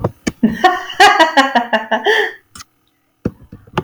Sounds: Laughter